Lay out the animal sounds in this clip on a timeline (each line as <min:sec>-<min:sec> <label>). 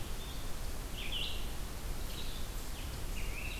0:00.0-0:03.6 Red-eyed Vireo (Vireo olivaceus)